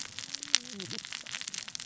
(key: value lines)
label: biophony, cascading saw
recorder: SoundTrap 600 or HydroMoth